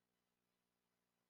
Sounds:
Laughter